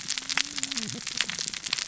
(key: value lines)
label: biophony, cascading saw
recorder: SoundTrap 600 or HydroMoth